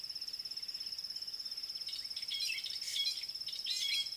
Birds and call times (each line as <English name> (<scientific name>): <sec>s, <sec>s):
Fork-tailed Drongo (Dicrurus adsimilis): 3.1s